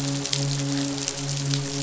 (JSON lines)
{"label": "biophony, midshipman", "recorder": "SoundTrap 500"}